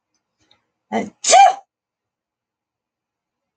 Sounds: Sneeze